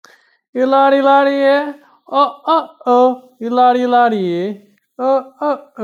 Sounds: Sigh